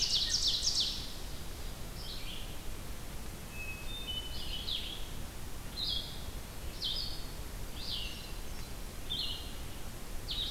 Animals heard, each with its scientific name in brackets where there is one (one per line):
Hermit Thrush (Catharus guttatus)
Red-eyed Vireo (Vireo olivaceus)
Ovenbird (Seiurus aurocapilla)